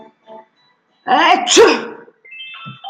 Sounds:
Sneeze